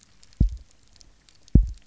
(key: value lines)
label: biophony, double pulse
recorder: SoundTrap 300